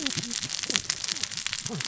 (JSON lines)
{"label": "biophony, cascading saw", "recorder": "SoundTrap 600 or HydroMoth"}